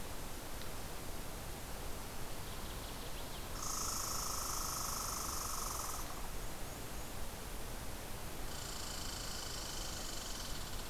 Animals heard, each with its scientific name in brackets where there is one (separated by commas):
Northern Waterthrush (Parkesia noveboracensis), Golden-crowned Kinglet (Regulus satrapa), Red Squirrel (Tamiasciurus hudsonicus)